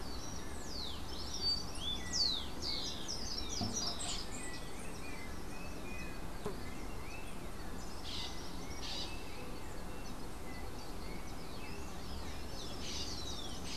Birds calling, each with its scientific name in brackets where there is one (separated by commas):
Slate-throated Redstart (Myioborus miniatus), Yellow-backed Oriole (Icterus chrysater), Bronze-winged Parrot (Pionus chalcopterus), Rufous-collared Sparrow (Zonotrichia capensis)